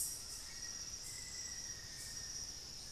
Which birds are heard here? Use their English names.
Collared Trogon, Black-faced Antthrush